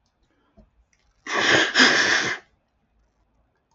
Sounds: Sniff